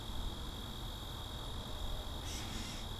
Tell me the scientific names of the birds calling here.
Dumetella carolinensis